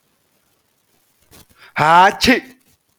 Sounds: Sneeze